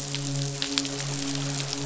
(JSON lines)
{"label": "biophony, midshipman", "recorder": "SoundTrap 500"}